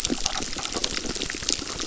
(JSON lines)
{"label": "biophony, crackle", "recorder": "SoundTrap 600"}